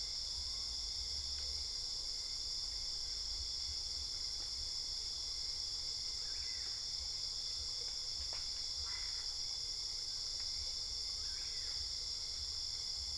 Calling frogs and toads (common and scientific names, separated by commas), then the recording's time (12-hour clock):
Boana albopunctata
1:00am